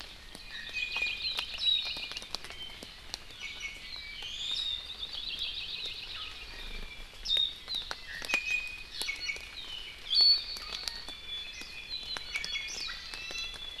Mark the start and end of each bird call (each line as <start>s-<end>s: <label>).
0.2s-1.2s: Iiwi (Drepanis coccinea)
0.4s-2.2s: Hawaii Creeper (Loxops mana)
1.5s-1.8s: Warbling White-eye (Zosterops japonicus)
3.4s-3.8s: Iiwi (Drepanis coccinea)
4.1s-4.9s: Iiwi (Drepanis coccinea)
4.8s-6.5s: Hawaii Creeper (Loxops mana)
7.2s-7.6s: Warbling White-eye (Zosterops japonicus)
7.9s-9.6s: Iiwi (Drepanis coccinea)
10.1s-13.8s: Iiwi (Drepanis coccinea)